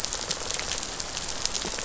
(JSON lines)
{"label": "biophony", "recorder": "SoundTrap 500"}